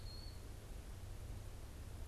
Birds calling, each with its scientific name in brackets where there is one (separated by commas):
Eastern Wood-Pewee (Contopus virens)